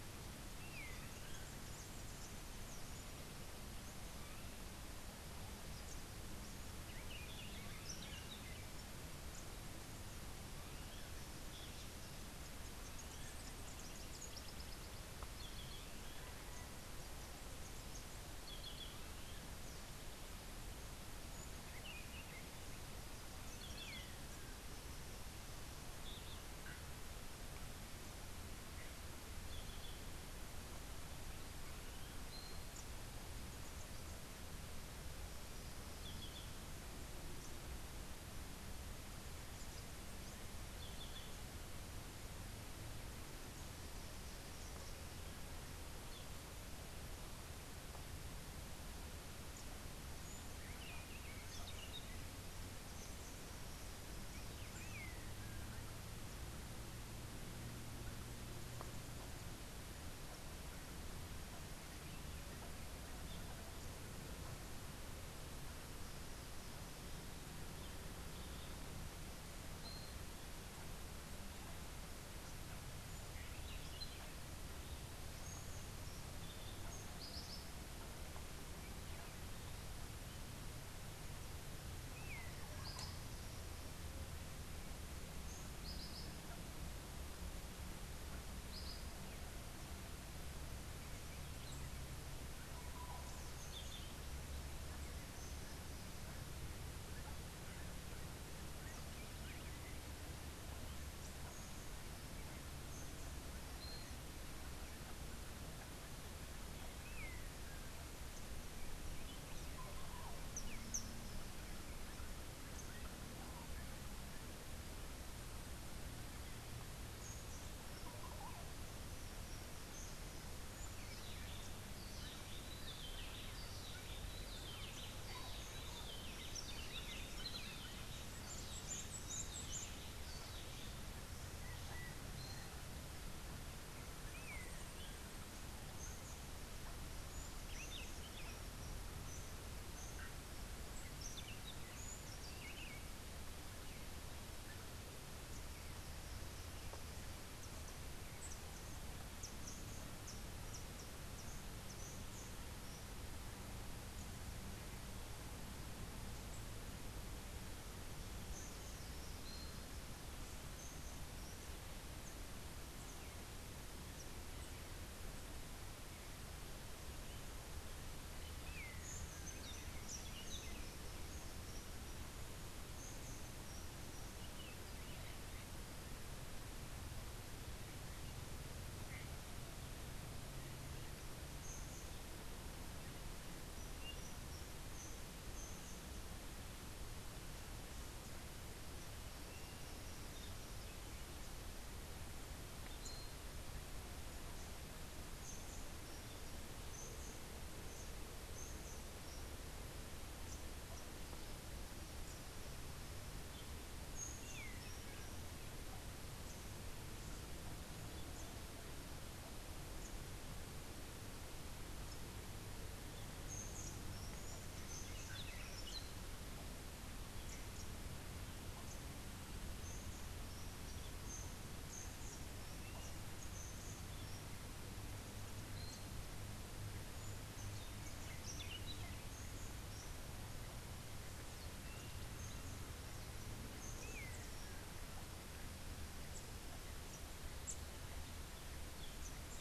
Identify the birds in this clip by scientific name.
Chiroxiphia linearis, Saltator maximus, Euphonia hirundinacea, Euphonia luteicapilla, unidentified bird, Amazilia tzacatl, Psarocolius montezuma, Pheugopedius rutilus